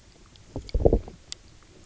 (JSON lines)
{"label": "biophony, low growl", "recorder": "SoundTrap 300"}